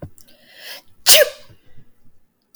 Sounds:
Sneeze